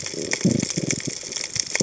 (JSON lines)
{"label": "biophony", "recorder": "HydroMoth"}